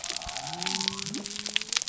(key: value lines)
label: biophony
recorder: SoundTrap 300